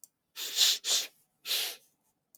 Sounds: Sniff